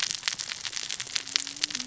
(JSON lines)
{"label": "biophony, cascading saw", "recorder": "SoundTrap 600 or HydroMoth"}